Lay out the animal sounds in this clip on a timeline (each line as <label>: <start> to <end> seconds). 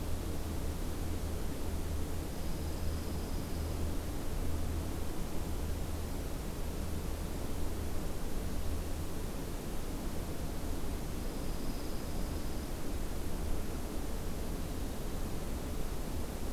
Dark-eyed Junco (Junco hyemalis): 2.2 to 3.8 seconds
Dark-eyed Junco (Junco hyemalis): 11.1 to 12.7 seconds